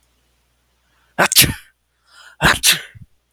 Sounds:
Sneeze